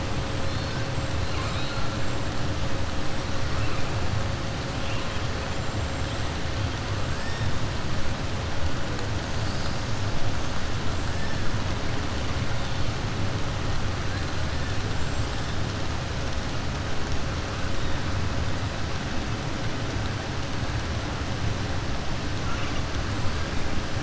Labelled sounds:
1.2	1.8	killer whale, southern resident, 1.1 to 5.2 kHz

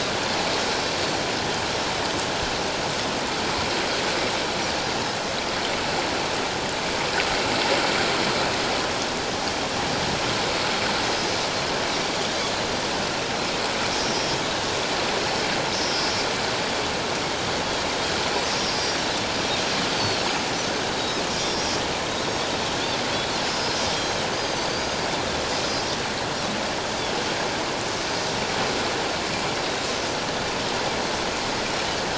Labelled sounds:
15.8	16.2	Pacific white-sided dolphin, 4.7 to 5.8 kHz
18.5	19.1	Pacific white-sided dolphin, 4.6 to 5.8 kHz
20.6	21.7	Pacific white-sided dolphin, 3.6 to 6.3 kHz
23.4	24.9	Pacific white-sided dolphin, 4.5 to 5.2 kHz
25.6	25.9	Pacific white-sided dolphin, 5.0 to 5.4 kHz

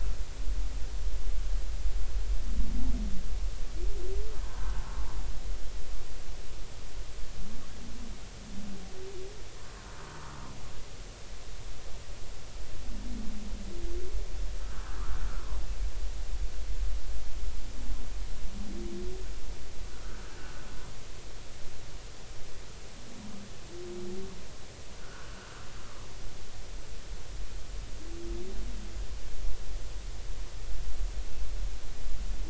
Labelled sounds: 14.9	15.2	humpback whale, 1.0 to 1.6 kHz
25.0	25.5	humpback whale, 1.3 to 1.7 kHz

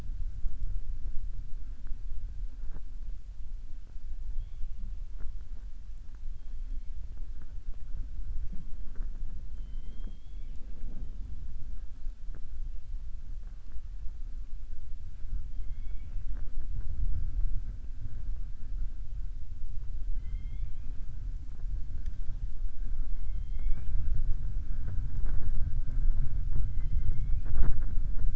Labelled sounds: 20.1	20.9	killer whale, southern resident, 2.0 to 3.5 kHz
23.2	24.0	killer whale, southern resident, 0.48 to 4.3 kHz

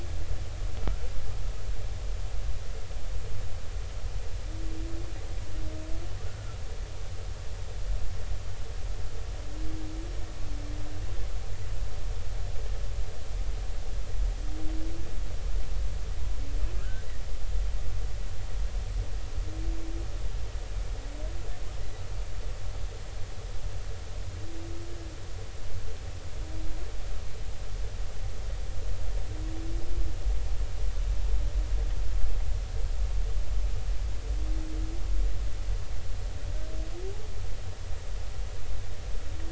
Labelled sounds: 6.3	6.6	humpback whale, 1.3 to 1.5 kHz
16.7	17.0	humpback whale, 1.2 to 1.7 kHz

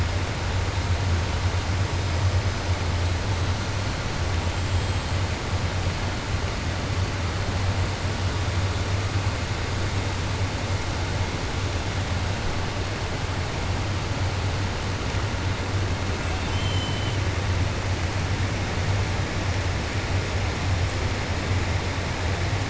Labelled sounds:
16.3	17.2	killer whale, 2.6 to 4.2 kHz

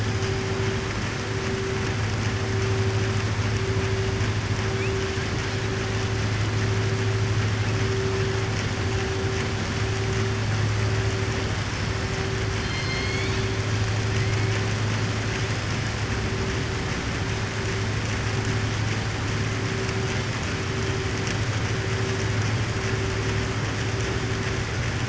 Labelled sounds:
12.5	13.4	killer whale, southern resident, 2.1 to 5.2 kHz

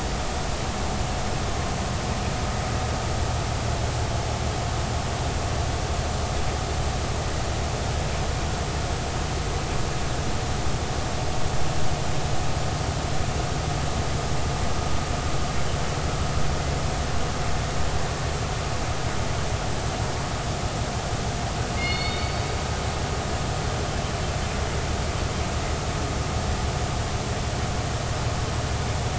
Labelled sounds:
21.7	22.5	killer whale, northern resident, G clan, call N24ii, 2.1 to 4.6 kHz

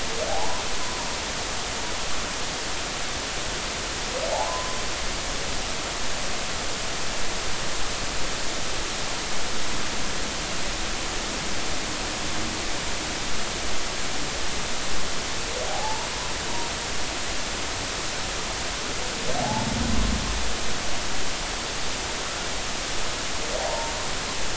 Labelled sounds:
0.3	0.6	humpback whale, 0.80 to 1.1 kHz
4.3	4.8	humpback whale, 0.80 to 1.2 kHz
15.7	16.1	humpback whale, 0.80 to 0.99 kHz
19.4	19.7	humpback whale, 0.80 to 0.93 kHz
23.6	23.9	humpback whale, 0.80 to 0.96 kHz

